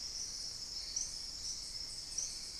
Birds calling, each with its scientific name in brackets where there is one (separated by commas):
Hauxwell's Thrush (Turdus hauxwelli)